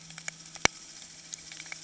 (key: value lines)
label: anthrophony, boat engine
recorder: HydroMoth